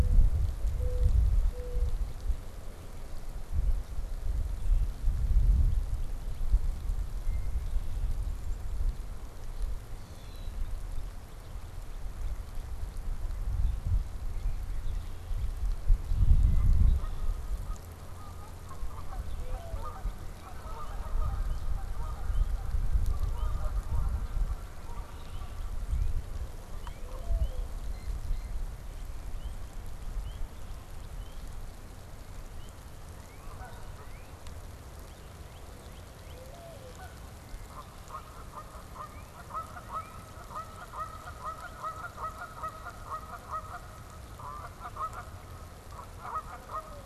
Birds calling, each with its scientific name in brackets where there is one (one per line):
Red-winged Blackbird (Agelaius phoeniceus)
Common Grackle (Quiscalus quiscula)
Mourning Dove (Zenaida macroura)
Canada Goose (Branta canadensis)
Northern Cardinal (Cardinalis cardinalis)
Blue Jay (Cyanocitta cristata)